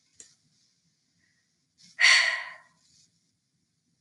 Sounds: Sigh